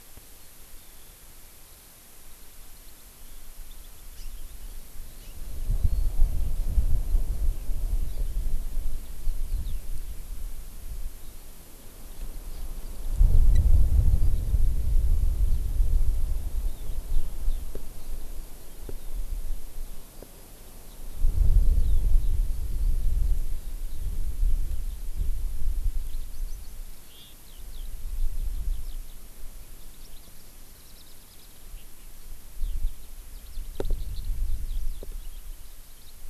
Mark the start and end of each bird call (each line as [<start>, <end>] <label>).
[0.30, 6.10] Eurasian Skylark (Alauda arvensis)
[4.10, 4.30] Hawaii Amakihi (Chlorodrepanis virens)
[5.20, 5.30] Hawaii Amakihi (Chlorodrepanis virens)
[8.00, 8.30] Hawaii Amakihi (Chlorodrepanis virens)
[8.80, 24.10] Eurasian Skylark (Alauda arvensis)
[12.50, 12.70] Hawaii Amakihi (Chlorodrepanis virens)
[24.90, 25.30] Eurasian Skylark (Alauda arvensis)
[26.00, 36.20] Eurasian Skylark (Alauda arvensis)